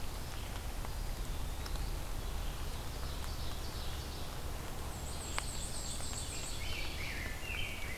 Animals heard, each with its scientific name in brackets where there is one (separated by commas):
Black-and-white Warbler (Mniotilta varia), Ovenbird (Seiurus aurocapilla), Rose-breasted Grosbeak (Pheucticus ludovicianus), Eastern Wood-Pewee (Contopus virens)